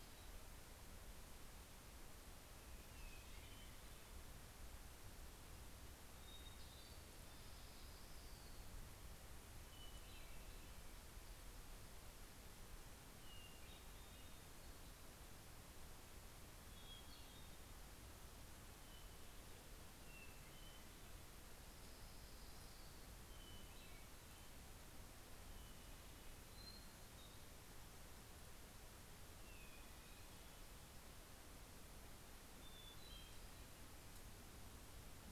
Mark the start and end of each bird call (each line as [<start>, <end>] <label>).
[0.00, 0.94] Hermit Thrush (Catharus guttatus)
[2.74, 4.44] American Robin (Turdus migratorius)
[6.04, 7.34] Hermit Thrush (Catharus guttatus)
[7.14, 9.14] Orange-crowned Warbler (Leiothlypis celata)
[9.24, 11.04] Hermit Thrush (Catharus guttatus)
[12.94, 14.84] Hermit Thrush (Catharus guttatus)
[15.94, 17.84] Hermit Thrush (Catharus guttatus)
[18.94, 21.14] Hermit Thrush (Catharus guttatus)
[21.54, 23.24] Orange-crowned Warbler (Leiothlypis celata)
[22.94, 24.84] Hermit Thrush (Catharus guttatus)
[25.34, 27.44] Hermit Thrush (Catharus guttatus)
[29.04, 31.04] Hermit Thrush (Catharus guttatus)
[32.34, 34.04] Hermit Thrush (Catharus guttatus)